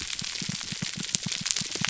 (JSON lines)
{"label": "biophony, pulse", "recorder": "SoundTrap 300"}